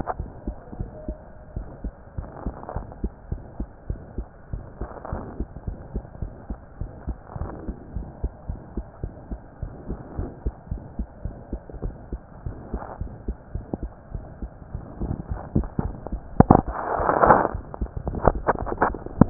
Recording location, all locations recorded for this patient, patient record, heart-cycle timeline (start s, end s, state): mitral valve (MV)
aortic valve (AV)+pulmonary valve (PV)+tricuspid valve (TV)+mitral valve (MV)
#Age: Child
#Sex: Male
#Height: 111.0 cm
#Weight: 18.3 kg
#Pregnancy status: False
#Murmur: Present
#Murmur locations: aortic valve (AV)+mitral valve (MV)+pulmonary valve (PV)+tricuspid valve (TV)
#Most audible location: tricuspid valve (TV)
#Systolic murmur timing: Mid-systolic
#Systolic murmur shape: Diamond
#Systolic murmur grading: III/VI or higher
#Systolic murmur pitch: Medium
#Systolic murmur quality: Harsh
#Diastolic murmur timing: nan
#Diastolic murmur shape: nan
#Diastolic murmur grading: nan
#Diastolic murmur pitch: nan
#Diastolic murmur quality: nan
#Outcome: Abnormal
#Campaign: 2015 screening campaign
0.00	0.16	unannotated
0.16	0.30	S1
0.30	0.44	systole
0.44	0.58	S2
0.58	0.75	diastole
0.75	0.90	S1
0.90	1.05	systole
1.05	1.18	S2
1.18	1.52	diastole
1.52	1.68	S1
1.68	1.82	systole
1.82	1.92	S2
1.92	2.14	diastole
2.14	2.28	S1
2.28	2.44	systole
2.44	2.54	S2
2.54	2.72	diastole
2.72	2.86	S1
2.86	3.02	systole
3.02	3.12	S2
3.12	3.28	diastole
3.28	3.42	S1
3.42	3.58	systole
3.58	3.68	S2
3.68	3.86	diastole
3.86	4.00	S1
4.00	4.16	systole
4.16	4.26	S2
4.26	4.50	diastole
4.50	4.64	S1
4.64	4.80	systole
4.80	4.90	S2
4.90	5.10	diastole
5.10	5.24	S1
5.24	5.38	systole
5.38	5.48	S2
5.48	5.66	diastole
5.66	5.78	S1
5.78	5.94	systole
5.94	6.04	S2
6.04	6.20	diastole
6.20	6.32	S1
6.32	6.48	systole
6.48	6.58	S2
6.58	6.78	diastole
6.78	6.90	S1
6.90	7.06	systole
7.06	7.18	S2
7.18	7.36	diastole
7.36	7.50	S1
7.50	7.66	systole
7.66	7.76	S2
7.76	7.94	diastole
7.94	8.08	S1
8.08	8.21	systole
8.21	8.32	S2
8.32	8.47	diastole
8.47	8.60	S1
8.60	8.74	systole
8.74	8.86	S2
8.86	9.01	diastole
9.01	9.14	S1
9.14	9.28	systole
9.28	9.40	S2
9.40	9.59	diastole
9.59	9.74	S1
9.74	9.87	systole
9.87	9.98	S2
9.98	10.15	diastole
10.15	10.30	S1
10.30	10.42	systole
10.42	10.54	S2
10.54	10.68	diastole
10.68	10.80	S1
10.80	10.94	systole
10.94	11.06	S2
11.06	11.21	diastole
11.21	11.32	S1
11.32	11.49	systole
11.49	11.62	S2
11.62	11.81	diastole
11.81	11.93	S1
11.93	12.09	systole
12.09	12.22	S2
12.22	12.43	diastole
12.43	12.54	S1
12.54	12.71	systole
12.71	12.80	S2
12.80	12.98	diastole
12.98	13.10	S1
13.10	13.26	systole
13.26	13.35	S2
13.35	13.52	diastole
13.52	13.61	S1
13.61	19.30	unannotated